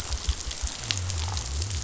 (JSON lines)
{"label": "biophony", "recorder": "SoundTrap 500"}